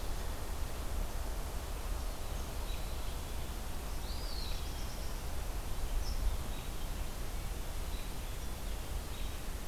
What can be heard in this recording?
Eastern Wood-Pewee, Black-throated Blue Warbler, American Robin